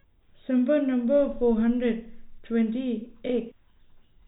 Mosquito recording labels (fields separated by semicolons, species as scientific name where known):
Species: no mosquito; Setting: cup